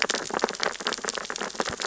{"label": "biophony, sea urchins (Echinidae)", "recorder": "SoundTrap 600 or HydroMoth"}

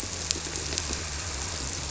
{"label": "biophony", "recorder": "SoundTrap 300"}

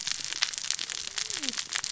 {"label": "biophony, cascading saw", "recorder": "SoundTrap 600 or HydroMoth"}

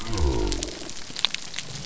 {"label": "biophony", "recorder": "SoundTrap 300"}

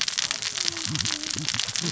{"label": "biophony, cascading saw", "recorder": "SoundTrap 600 or HydroMoth"}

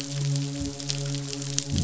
{"label": "biophony, midshipman", "recorder": "SoundTrap 500"}
{"label": "biophony", "recorder": "SoundTrap 500"}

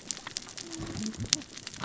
{"label": "biophony, cascading saw", "recorder": "SoundTrap 600 or HydroMoth"}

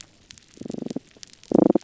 {"label": "biophony", "recorder": "SoundTrap 300"}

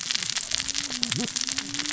{"label": "biophony, cascading saw", "recorder": "SoundTrap 600 or HydroMoth"}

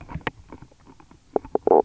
{"label": "biophony, knock croak", "recorder": "SoundTrap 300"}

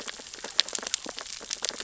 {"label": "biophony, sea urchins (Echinidae)", "recorder": "SoundTrap 600 or HydroMoth"}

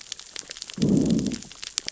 {"label": "biophony, growl", "recorder": "SoundTrap 600 or HydroMoth"}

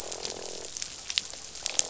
{"label": "biophony, croak", "recorder": "SoundTrap 500"}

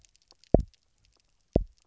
{"label": "biophony, double pulse", "recorder": "SoundTrap 300"}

